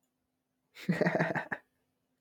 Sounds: Laughter